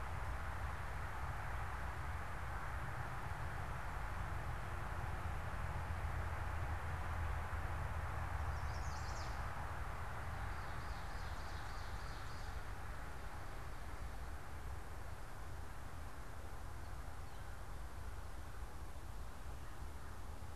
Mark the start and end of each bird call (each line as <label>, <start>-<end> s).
Chestnut-sided Warbler (Setophaga pensylvanica), 8.4-9.5 s
Ovenbird (Seiurus aurocapilla), 10.2-12.9 s